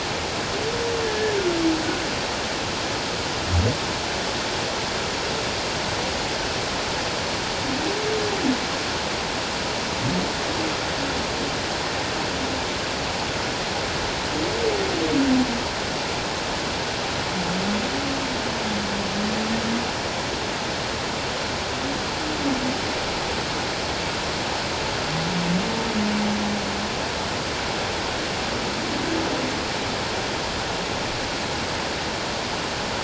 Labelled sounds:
1.0	1.4	humpback whale, 1.7 to 1.8 kHz

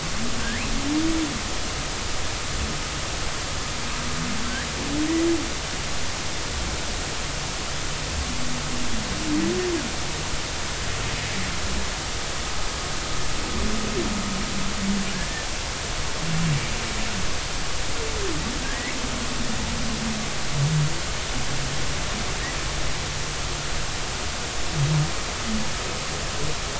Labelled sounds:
0.4	0.7	humpback whale, 1.5 to 2.8 kHz
15.1	15.5	humpback whale, 1.5 to 1.9 kHz
18.6	19.0	humpback whale, 1.5 to 2.3 kHz

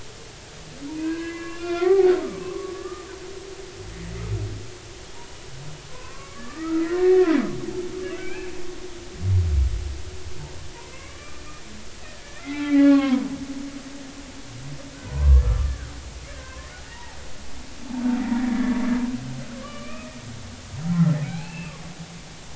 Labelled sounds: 0.9	2.1	humpback whale, 0.80 to 3.6 kHz
2.4	3.1	humpback whale, 1.0 to 1.9 kHz
5.9	7.3	humpback whale, 0.96 to 2.0 kHz
8.2	8.5	humpback whale, 1.5 to 2.7 kHz
10.9	11.4	humpback whale, 0.99 to 2.3 kHz
12.2	13.3	humpback whale, 0.80 to 4.3 kHz
14.9	15.9	humpback whale, 0.93 to 1.8 kHz
16.3	17.2	humpback whale, 0.80 to 2.0 kHz
18.4	20.2	humpback whale, 1.1 to 2.6 kHz
21.2	21.8	humpback whale, 0.80 to 4.4 kHz

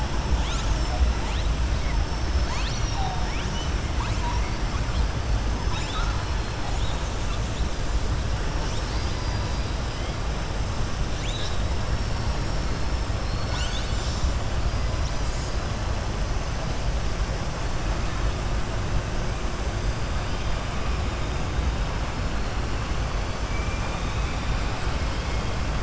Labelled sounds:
23.4	24.6	killer whale, southern resident, 2.3 to 4.0 kHz

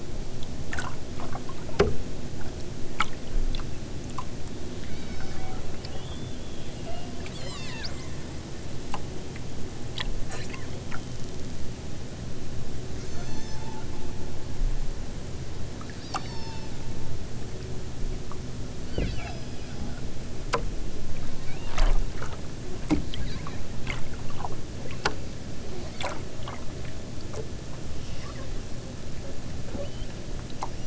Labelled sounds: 4.8	5.7	killer whale, southern Alaska resident, 1.0 to 6.7 kHz
6.7	8.2	killer whale, southern Alaska resident, 0.51 to 8.0 kHz
13.0	13.8	killer whale, southern Alaska resident, 1.1 to 7.4 kHz
16.0	16.8	killer whale, southern Alaska resident, 1.1 to 6.2 kHz
18.9	20.1	killer whale, southern Alaska resident, 1.1 to 6.0 kHz
21.4	21.7	killer whale, southern Alaska resident, 1.1 to 4.4 kHz
28.1	28.5	killer whale, southern Alaska resident, 0.83 to 3.4 kHz
29.6	30.1	killer whale, southern Alaska resident, 0.92 to 5.1 kHz

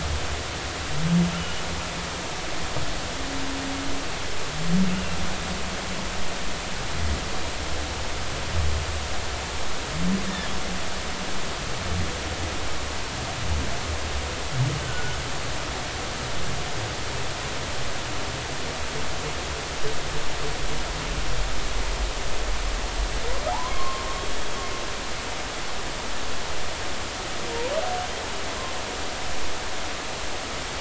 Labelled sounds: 1.4	1.6	humpback whale, 2.8 to 3.0 kHz
14.8	15.2	humpback whale, 1.4 to 1.6 kHz
23.5	24.0	humpback whale, 0.80 to 1.1 kHz

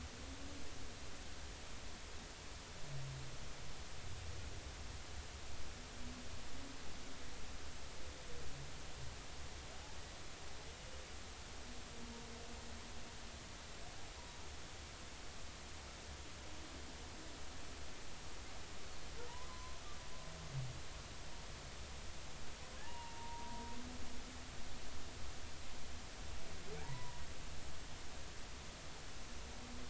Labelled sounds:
19.3	19.8	humpback whale, 0.86 to 1.1 kHz
22.8	23.7	humpback whale, 0.80 to 2.9 kHz
26.8	27.2	humpback whale, 0.80 to 1.1 kHz

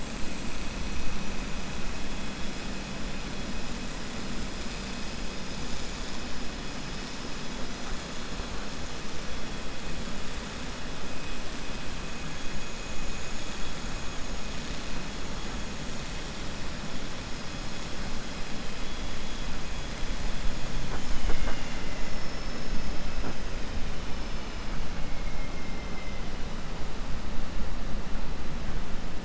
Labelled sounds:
21.9	23.0	vessel noise, 4.5 to 6.1 kHz

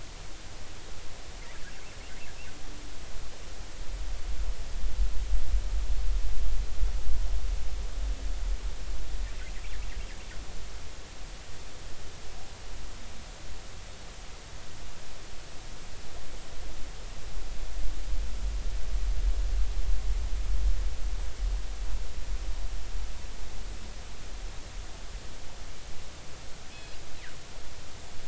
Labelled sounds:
26.7	27.0	killer whale, northern resident, G clan, GI subclan, call N24i, 2.4 to 3.5 kHz

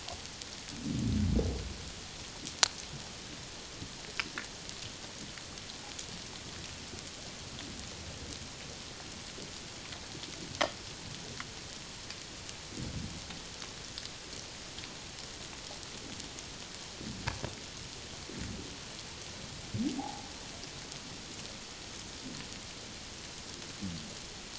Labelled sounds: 20.0	20.3	humpback whale, 0.78 to 0.94 kHz

